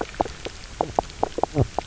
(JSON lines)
{"label": "biophony, knock croak", "recorder": "SoundTrap 300"}